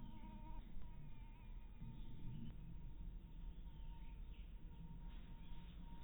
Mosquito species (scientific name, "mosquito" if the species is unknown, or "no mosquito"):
mosquito